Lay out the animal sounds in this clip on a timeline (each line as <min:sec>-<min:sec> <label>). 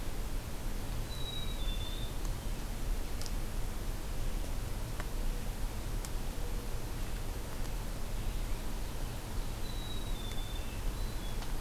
0:01.1-0:02.2 Black-capped Chickadee (Poecile atricapillus)
0:01.1-0:02.7 Hermit Thrush (Catharus guttatus)
0:08.5-0:09.8 Ovenbird (Seiurus aurocapilla)
0:09.6-0:10.7 Black-capped Chickadee (Poecile atricapillus)
0:10.4-0:11.5 Hermit Thrush (Catharus guttatus)